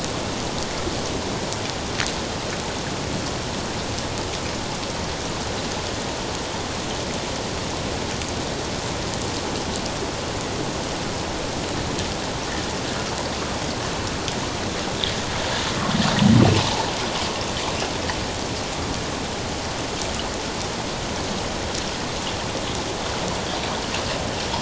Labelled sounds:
16.6	16.9	humpback whale, 0.78 to 1.0 kHz

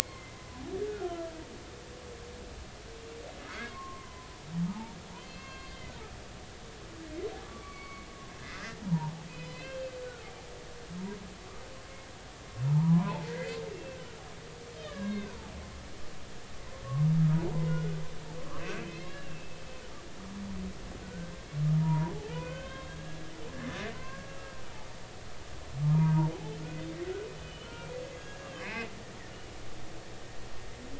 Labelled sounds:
0.0	0.4	humpback whale, 2.0 to 2.2 kHz
0.7	1.1	humpback whale, 1.3 to 1.8 kHz
3.5	4.3	humpback whale, 0.96 to 2.2 kHz
4.6	5.9	humpback whale, 0.80 to 4.9 kHz
7.4	8.1	humpback whale, 1.1 to 2.4 kHz
8.5	9.9	humpback whale, 0.80 to 4.3 kHz
12.7	14.0	humpback whale, 0.80 to 2.8 kHz
14.8	15.4	humpback whale, 0.93 to 4.0 kHz
17.5	18.0	humpback whale, 0.83 to 2.1 kHz
18.6	19.6	humpback whale, 1.5 to 3.4 kHz
21.0	21.4	humpback whale, 1.4 to 1.6 kHz
21.7	24.4	humpback whale, 0.83 to 4.6 kHz
25.8	26.6	humpback whale, 0.80 to 1.3 kHz
27.4	28.9	humpback whale, 1.3 to 6.7 kHz

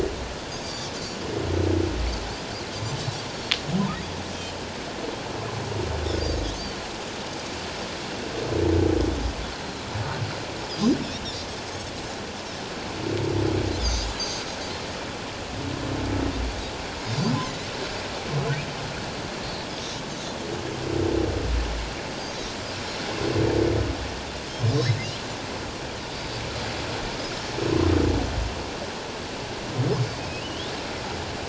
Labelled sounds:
0.6	0.9	Pacific white-sided dolphin, 4.4 to 4.9 kHz
10.6	11.0	Pacific white-sided dolphin, 4.7 to 5.2 kHz
13.8	14.4	Pacific white-sided dolphin, 4.4 to 6.6 kHz
22.1	22.4	Pacific white-sided dolphin, 6.2 to 6.6 kHz
30.4	30.7	humpback whale, 2.7 to 3.8 kHz

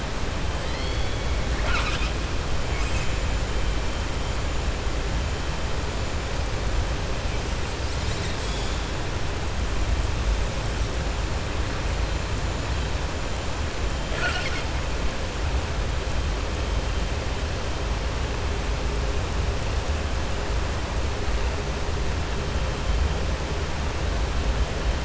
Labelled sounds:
0.6	2.1	killer whale, southern resident, 0.70 to 7.7 kHz
14.0	14.7	killer whale, southern resident, 0.66 to 7.7 kHz

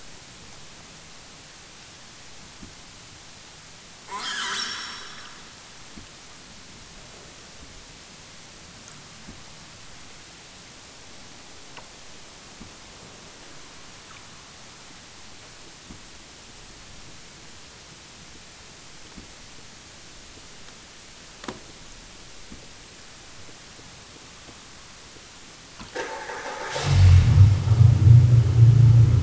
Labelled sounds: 4.0	5.6	killer whale, southern Alaska resident, 0.41 to 8.0 kHz

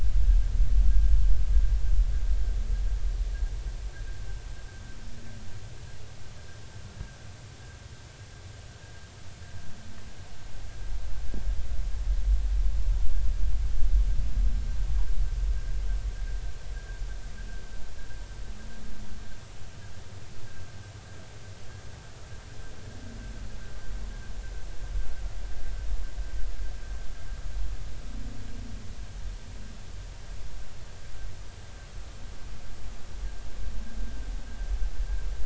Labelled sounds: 16.7	17.0	humpback whale, 1.5 to 1.7 kHz

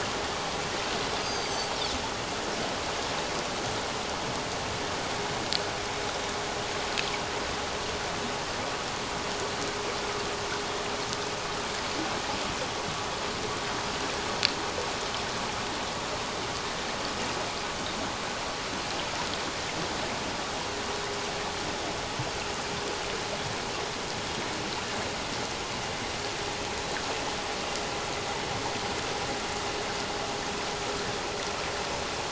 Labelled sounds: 1.2	1.7	Pacific white-sided dolphin, 4.5 to 6.5 kHz

